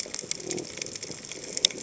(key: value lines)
label: biophony
recorder: HydroMoth